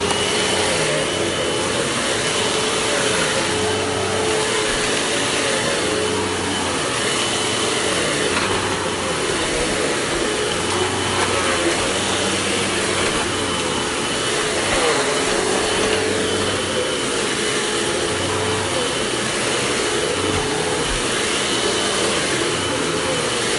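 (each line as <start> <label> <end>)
0.0 A vacuum cleaner hums distinctly. 23.6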